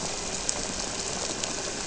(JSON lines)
{"label": "biophony", "recorder": "SoundTrap 300"}